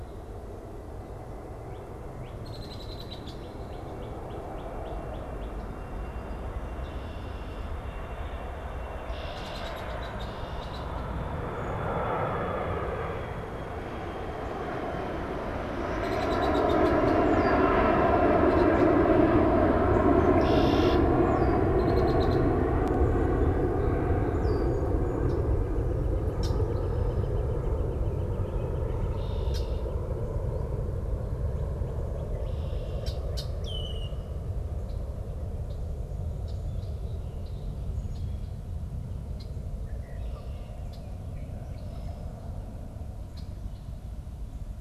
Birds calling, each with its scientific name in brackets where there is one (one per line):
Red-winged Blackbird (Agelaius phoeniceus)
Northern Cardinal (Cardinalis cardinalis)
Northern Flicker (Colaptes auratus)